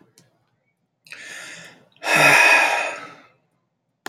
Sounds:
Sigh